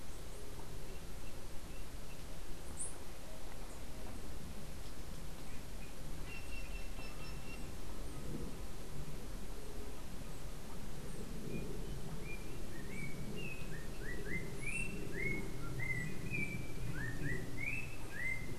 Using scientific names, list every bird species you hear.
Cyanocorax yncas, Icterus chrysater